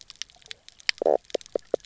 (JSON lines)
{"label": "biophony, knock croak", "recorder": "SoundTrap 300"}